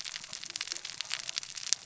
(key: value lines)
label: biophony, cascading saw
recorder: SoundTrap 600 or HydroMoth